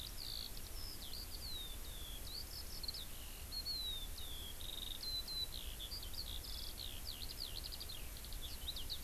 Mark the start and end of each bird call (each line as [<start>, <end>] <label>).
[0.00, 9.03] Eurasian Skylark (Alauda arvensis)